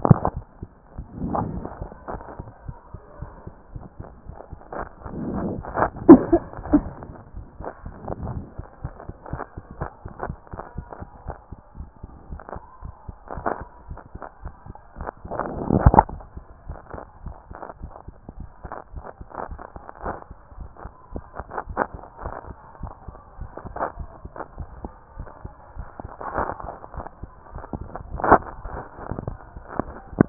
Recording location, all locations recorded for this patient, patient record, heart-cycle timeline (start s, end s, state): mitral valve (MV)
aortic valve (AV)+pulmonary valve (PV)+tricuspid valve (TV)+mitral valve (MV)
#Age: Child
#Sex: Female
#Height: 165.0 cm
#Weight: 46.6 kg
#Pregnancy status: False
#Murmur: Absent
#Murmur locations: nan
#Most audible location: nan
#Systolic murmur timing: nan
#Systolic murmur shape: nan
#Systolic murmur grading: nan
#Systolic murmur pitch: nan
#Systolic murmur quality: nan
#Diastolic murmur timing: nan
#Diastolic murmur shape: nan
#Diastolic murmur grading: nan
#Diastolic murmur pitch: nan
#Diastolic murmur quality: nan
#Outcome: Normal
#Campaign: 2014 screening campaign
0.00	8.14	unannotated
8.14	8.22	diastole
8.22	8.42	S1
8.42	8.58	systole
8.58	8.66	S2
8.66	8.82	diastole
8.82	8.94	S1
8.94	9.06	systole
9.06	9.14	S2
9.14	9.32	diastole
9.32	9.42	S1
9.42	9.56	systole
9.56	9.64	S2
9.64	9.80	diastole
9.80	9.90	S1
9.90	10.04	systole
10.04	10.12	S2
10.12	10.26	diastole
10.26	10.38	S1
10.38	10.52	systole
10.52	10.62	S2
10.62	10.76	diastole
10.76	10.86	S1
10.86	11.00	systole
11.00	11.08	S2
11.08	11.26	diastole
11.26	11.36	S1
11.36	11.50	systole
11.50	11.58	S2
11.58	11.78	diastole
11.78	11.88	S1
11.88	12.02	systole
12.02	12.10	S2
12.10	12.30	diastole
12.30	12.40	S1
12.40	12.54	systole
12.54	12.62	S2
12.62	12.82	diastole
12.82	12.94	S1
12.94	13.08	systole
13.08	13.16	S2
13.16	13.36	diastole
13.36	13.50	S1
13.50	13.60	systole
13.60	13.68	S2
13.68	13.88	diastole
13.88	13.98	S1
13.98	14.14	systole
14.14	14.22	S2
14.22	14.42	diastole
14.42	14.54	S1
14.54	14.66	systole
14.66	14.76	S2
14.76	14.98	diastole
14.98	30.29	unannotated